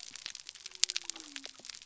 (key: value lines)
label: biophony
recorder: SoundTrap 300